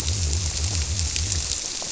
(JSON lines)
{"label": "biophony", "recorder": "SoundTrap 300"}